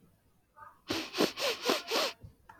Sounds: Sniff